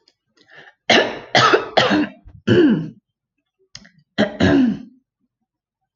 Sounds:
Throat clearing